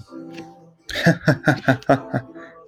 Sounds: Laughter